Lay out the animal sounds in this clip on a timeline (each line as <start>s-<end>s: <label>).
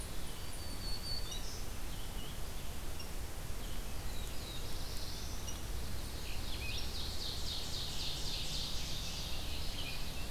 0.0s-2.0s: Black-throated Green Warbler (Setophaga virens)
0.0s-10.3s: Red-eyed Vireo (Vireo olivaceus)
3.6s-5.7s: Black-throated Blue Warbler (Setophaga caerulescens)
6.8s-10.2s: Ovenbird (Seiurus aurocapilla)